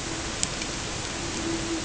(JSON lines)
{"label": "ambient", "recorder": "HydroMoth"}